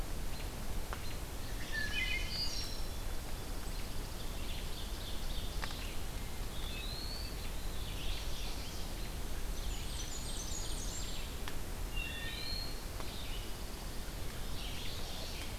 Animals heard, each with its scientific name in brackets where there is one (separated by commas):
Blackburnian Warbler (Setophaga fusca), American Robin (Turdus migratorius), Mourning Warbler (Geothlypis philadelphia), Ovenbird (Seiurus aurocapilla), Eastern Wood-Pewee (Contopus virens), Pine Warbler (Setophaga pinus), Wood Thrush (Hylocichla mustelina)